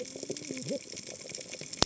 {"label": "biophony, cascading saw", "recorder": "HydroMoth"}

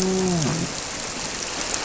{"label": "biophony, grouper", "recorder": "SoundTrap 300"}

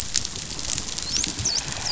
{"label": "biophony, dolphin", "recorder": "SoundTrap 500"}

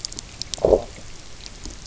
{"label": "biophony, low growl", "recorder": "SoundTrap 300"}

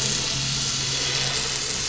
{"label": "anthrophony, boat engine", "recorder": "SoundTrap 500"}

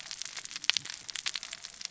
{"label": "biophony, cascading saw", "recorder": "SoundTrap 600 or HydroMoth"}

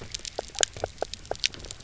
{"label": "biophony, knock croak", "recorder": "SoundTrap 300"}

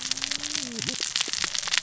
{"label": "biophony, cascading saw", "recorder": "SoundTrap 600 or HydroMoth"}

